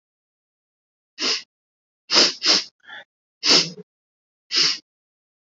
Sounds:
Sniff